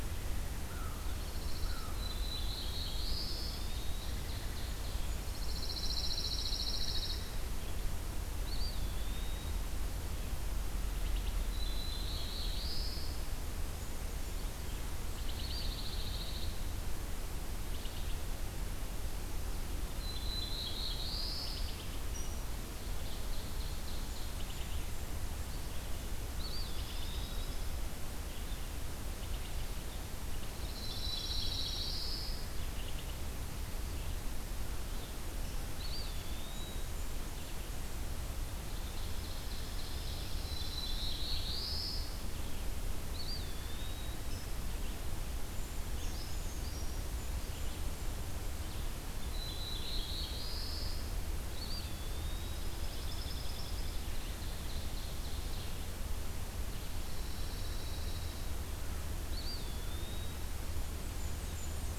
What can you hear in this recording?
American Crow, Pine Warbler, Black-throated Blue Warbler, Ovenbird, Blackburnian Warbler, Red-eyed Vireo, Eastern Wood-Pewee, Brown Creeper